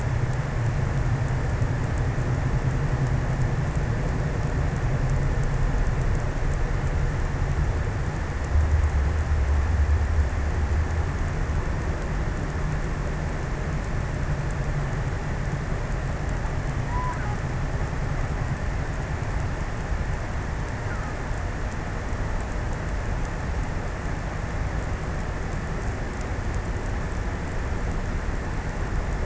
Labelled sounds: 16.3	17.9	killer whale, offshore, 0.61 to 2.1 kHz

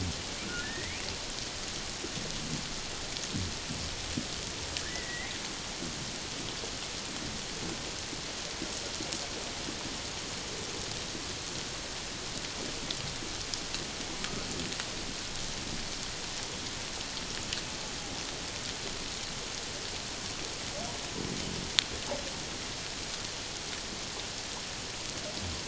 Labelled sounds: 0.6	1.0	humpback whale, 1.7 to 2.5 kHz
4.8	5.3	humpback whale, 1.5 to 2.3 kHz

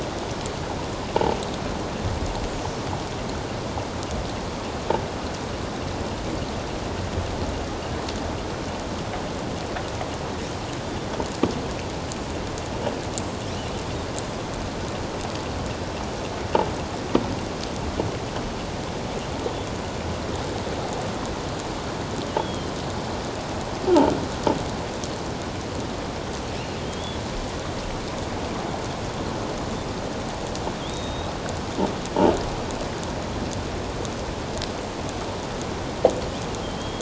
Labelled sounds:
22.4	22.7	killer whale, offshore, 3.1 to 3.4 kHz
26.8	27.2	killer whale, offshore, 3.1 to 3.5 kHz
30.8	31.3	killer whale, offshore, 3.1 to 6.3 kHz
36.6	37.0	killer whale, offshore, 3.1 to 3.3 kHz

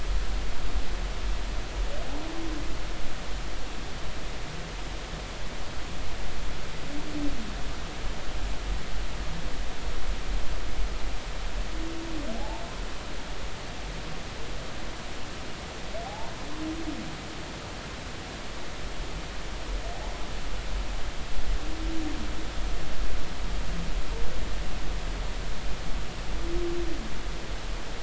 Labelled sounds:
12.4	12.6	humpback whale, 0.80 to 0.96 kHz
16.0	16.3	humpback whale, 0.80 to 1.1 kHz

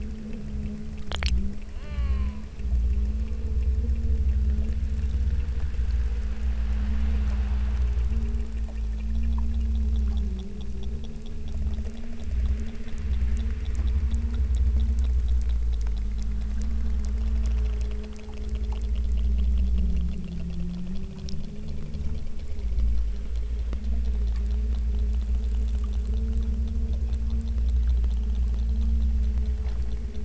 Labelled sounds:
1.7	2.5	killer whale, southern Alaska resident, 0.43 to 5.2 kHz

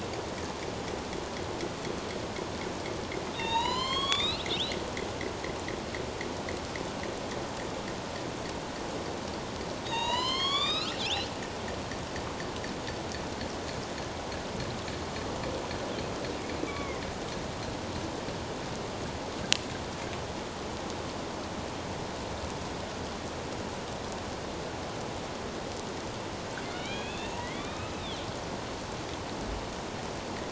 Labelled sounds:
3.3	4.4	killer whale, northern resident, A clan, AB subclan, 0.84 to 7.9 kHz
9.8	11.3	killer whale, northern resident, A clan, AB subclan, 0.84 to 7.6 kHz
16.7	17.0	killer whale, northern resident, A clan, AB subclan, 1.1 to 2.4 kHz
26.6	28.2	killer whale, northern resident, A clan, AB subclan, 1.1 to 4.2 kHz

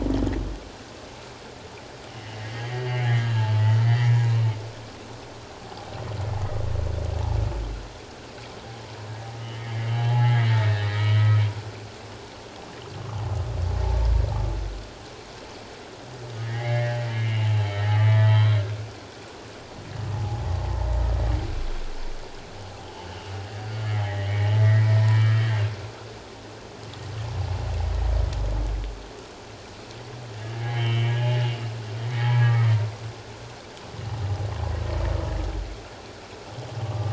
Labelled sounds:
2.1	3.3	humpback whale, 1.6 to 3.3 kHz
3.8	4.2	humpback whale, 1.7 to 2.3 kHz
9.9	11.4	humpback whale, 0.81 to 3.2 kHz
16.4	19.0	humpback whale, 0.88 to 3.3 kHz
20.1	20.4	humpback whale, 0.78 to 0.91 kHz
24.0	25.6	humpback whale, 1.2 to 3.2 kHz
30.6	31.6	humpback whale, 2.0 to 3.2 kHz
32.1	32.7	humpback whale, 1.0 to 2.0 kHz
36.8	37.1	humpback whale, 1.1 to 1.2 kHz

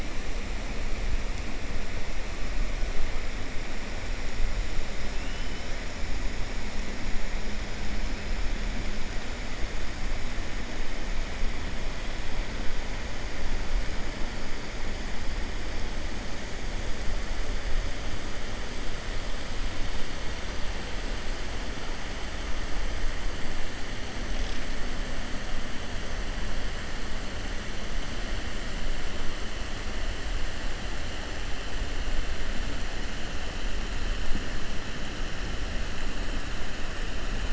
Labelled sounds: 5.1	5.6	killer whale, 2.6 to 3.1 kHz

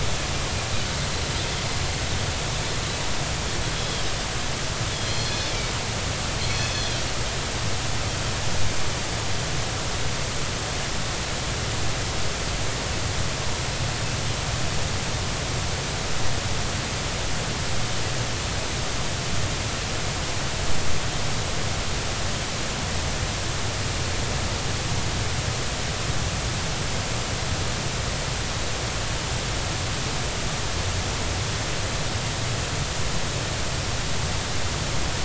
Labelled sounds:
5.1	5.5	Pacific white-sided dolphin, 3.4 to 4.4 kHz
6.4	7.1	Pacific white-sided dolphin, 2.5 to 6.1 kHz

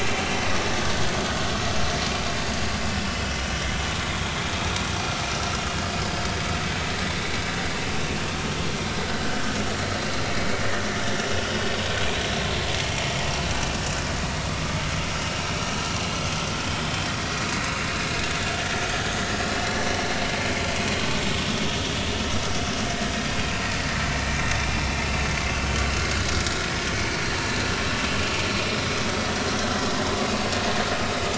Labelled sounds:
29.7	30.1	vessel noise, 1.8 to 2.0 kHz

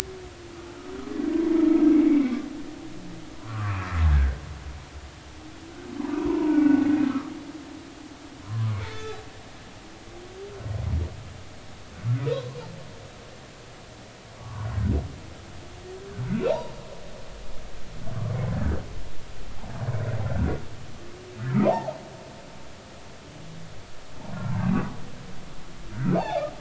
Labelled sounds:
1.9	2.3	humpback whale, 2.0 to 2.3 kHz
3.4	4.4	humpback whale, 0.96 to 2.8 kHz
6.2	7.3	humpback whale, 0.83 to 1.5 kHz
8.4	9.2	humpback whale, 0.96 to 3.6 kHz
12.2	12.6	humpback whale, 0.93 to 1.1 kHz
14.4	14.7	humpback whale, 0.83 to 1.2 kHz
16.5	16.7	humpback whale, 0.80 to 1.0 kHz
21.4	22.0	humpback whale, 0.80 to 1.5 kHz
26.1	26.5	humpback whale, 0.80 to 3.7 kHz

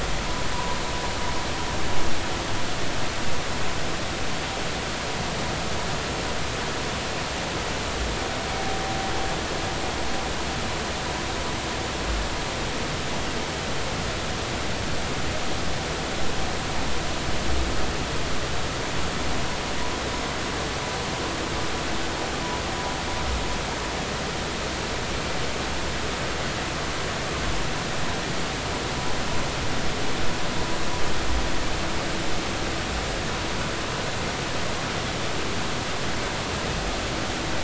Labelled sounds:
0.5	0.8	vessel noise, 0.90 to 1.1 kHz

